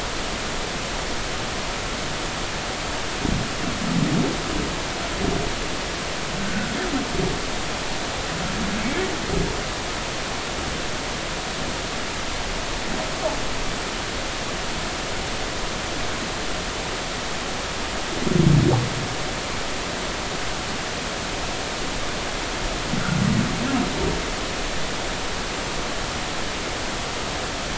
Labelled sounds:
6.5	6.7	humpback whale, 1.4 to 1.6 kHz

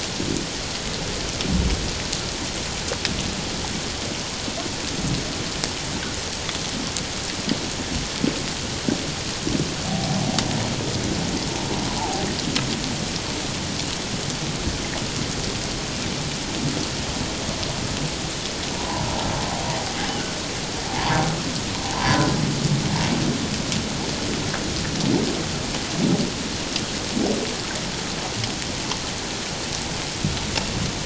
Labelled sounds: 9.9	10.2	humpback whale, 0.78 to 0.84 kHz
12.0	12.3	humpback whale, 0.78 to 1.0 kHz
18.7	19.1	humpback whale, 0.78 to 1.1 kHz
21.9	22.3	humpback whale, 0.78 to 1.1 kHz

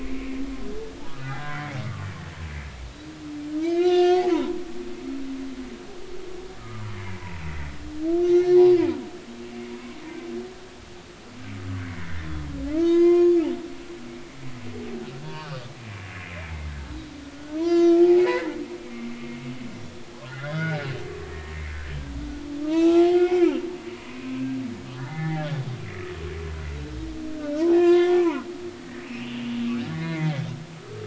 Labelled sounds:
1.3	1.6	humpback whale, 1.3 to 1.7 kHz
3.6	4.6	humpback whale, 0.86 to 5.1 kHz
6.6	6.9	humpback whale, 0.99 to 1.4 kHz
8.2	8.6	humpback whale, 2.1 to 5.7 kHz
12.0	13.3	humpback whale, 0.90 to 6.7 kHz
15.2	16.7	humpback whale, 0.86 to 2.8 kHz
17.3	18.5	humpback whale, 0.80 to 6.2 kHz
18.8	19.4	humpback whale, 2.1 to 2.3 kHz
20.3	20.8	humpback whale, 1.2 to 3.6 kHz
22.6	23.5	humpback whale, 0.90 to 2.7 kHz
25.0	25.6	humpback whale, 0.80 to 3.7 kHz
27.7	28.5	humpback whale, 0.83 to 6.0 kHz
29.0	30.4	humpback whale, 0.90 to 3.1 kHz
30.8	31.0	humpback whale, 1.1 to 1.4 kHz

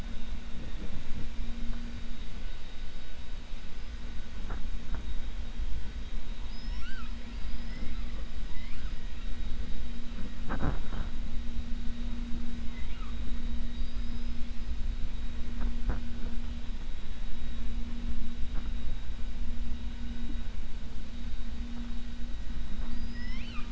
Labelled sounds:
6.4	7.1	killer whale, 1.1 to 7.5 kHz
7.6	8.1	killer whale, 1.3 to 3.4 kHz
22.8	23.6	killer whale, 1.1 to 5.8 kHz

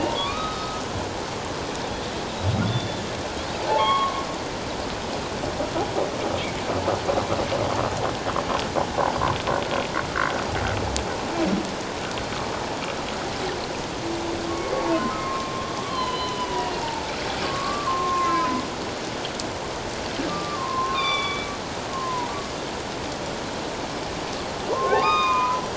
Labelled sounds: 0.1	0.8	humpback whale, 1.1 to 3.8 kHz
2.7	3.0	Pacific white-sided dolphin, 3.4 to 3.6 kHz
3.7	4.2	humpback whale, 0.81 to 3.4 kHz
14.5	15.5	humpback whale, 1.0 to 1.2 kHz
15.8	18.6	humpback whale, 0.84 to 4.3 kHz
20.3	22.4	humpback whale, 0.88 to 4.8 kHz
24.7	25.6	humpback whale, 0.91 to 5.0 kHz

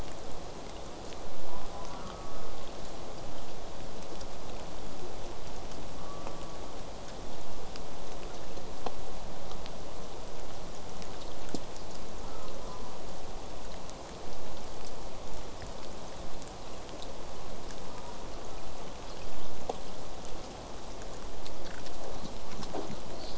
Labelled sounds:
1.5	2.6	killer whale, southern resident, J pod, call S04, 0.54 to 1.4 kHz
6.0	6.7	killer whale, southern resident, J pod, call S04, 0.89 to 1.4 kHz
12.2	13.0	killer whale, southern resident, J pod, call S04, 0.27 to 1.4 kHz
17.8	18.4	killer whale, southern resident, J pod, call S04, 0.29 to 1.4 kHz

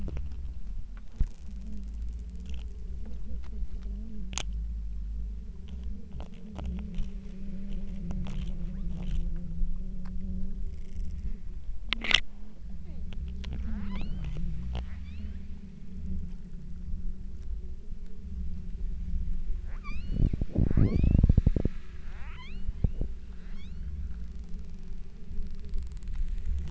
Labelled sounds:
13.8	14.4	killer whale, southern Alaska resident, 0.71 to 5.1 kHz
15.0	15.6	killer whale, southern Alaska resident, 1.6 to 5.9 kHz
19.8	20.5	killer whale, southern Alaska resident, 0.84 to 8.0 kHz
20.8	21.4	killer whale, southern Alaska resident, 0.94 to 6.8 kHz
22.3	22.9	killer whale, southern Alaska resident, 0.57 to 8.0 kHz
23.4	24.1	killer whale, southern Alaska resident, 1.1 to 8.0 kHz

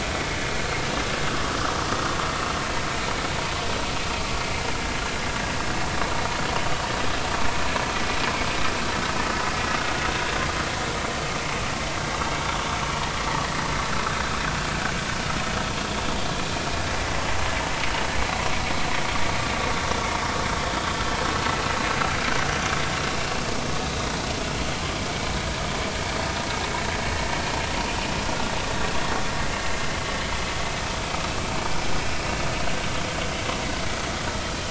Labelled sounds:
12.5	12.8	vessel noise, 3.4 to 3.6 kHz
15.9	16.2	vessel noise, 3.4 to 3.5 kHz
28.3	28.5	vessel noise, 1.3 to 1.5 kHz

